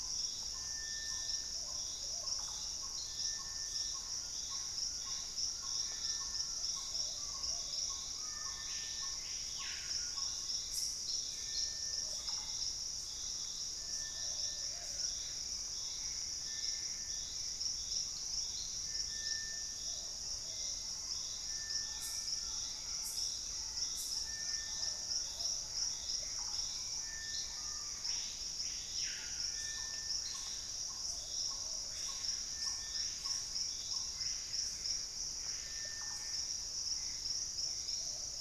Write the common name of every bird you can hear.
Purple-throated Fruitcrow, Plumbeous Pigeon, Russet-backed Oropendola, Gray Antbird, Collared Trogon, Hauxwell's Thrush, Screaming Piha